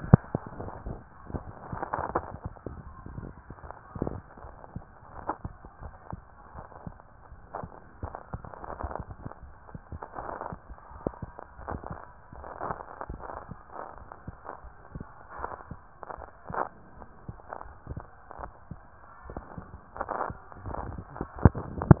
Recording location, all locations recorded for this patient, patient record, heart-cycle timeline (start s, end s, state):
mitral valve (MV)
pulmonary valve (PV)+tricuspid valve (TV)+mitral valve (MV)
#Age: Child
#Sex: Female
#Height: 128.0 cm
#Weight: 36.4 kg
#Pregnancy status: False
#Murmur: Present
#Murmur locations: mitral valve (MV)+pulmonary valve (PV)
#Most audible location: pulmonary valve (PV)
#Systolic murmur timing: Holosystolic
#Systolic murmur shape: Plateau
#Systolic murmur grading: I/VI
#Systolic murmur pitch: Low
#Systolic murmur quality: Harsh
#Diastolic murmur timing: nan
#Diastolic murmur shape: nan
#Diastolic murmur grading: nan
#Diastolic murmur pitch: nan
#Diastolic murmur quality: nan
#Outcome: Abnormal
#Campaign: 2015 screening campaign
0.00	4.20	unannotated
4.20	4.36	diastole
4.36	4.51	S1
4.51	4.73	systole
4.73	4.83	S2
4.83	5.12	diastole
5.12	5.23	S1
5.23	5.40	systole
5.40	5.52	S2
5.52	5.79	diastole
5.79	5.92	S1
5.92	6.08	systole
6.08	6.24	S2
6.24	6.52	diastole
6.52	6.70	S1
6.70	6.82	systole
6.82	6.95	S2
6.95	7.29	diastole
7.29	7.42	S1
7.42	7.58	systole
7.58	7.72	S2
7.72	8.00	diastole
8.00	8.12	S1
8.12	8.28	systole
8.28	8.42	S2
8.42	8.58	diastole
8.58	8.68	S1
8.68	8.77	systole
8.77	8.87	S2
8.87	9.04	diastole
9.04	22.00	unannotated